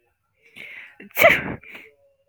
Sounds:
Sniff